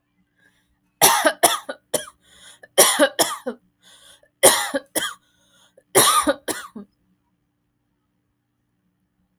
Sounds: Cough